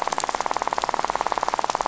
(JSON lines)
{"label": "biophony, rattle", "recorder": "SoundTrap 500"}